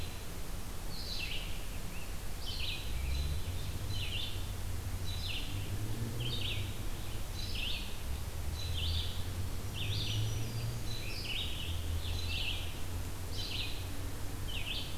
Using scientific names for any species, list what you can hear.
Vireo olivaceus, Piranga olivacea, Setophaga virens